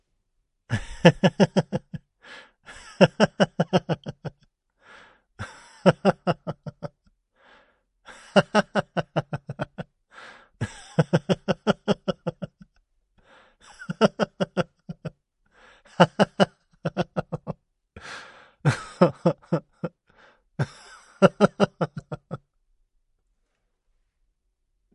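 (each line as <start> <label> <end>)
0.2 A man laughs joyfully and repeatedly with sweet giggles and genuine hilarity. 24.8
0.7 A man laughs. 2.0
2.8 A man laughing. 4.3
5.5 A man laughing. 6.9
8.1 A man laughing. 9.8
10.6 A man laughing. 12.5
13.8 A man laughing. 15.1
16.0 A man laughing. 19.9
20.6 A man laughing. 22.4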